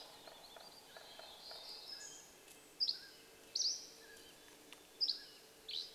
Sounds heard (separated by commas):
Mountain Chickadee song, Red-breasted Nuthatch song, Mountain Quail call, Steller's Jay call, warbler song, woodpecker drumming, Dusky Flycatcher song